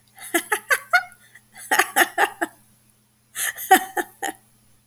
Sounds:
Laughter